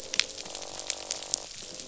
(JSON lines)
{"label": "biophony, croak", "recorder": "SoundTrap 500"}